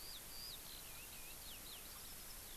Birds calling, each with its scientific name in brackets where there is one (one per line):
Eurasian Skylark (Alauda arvensis)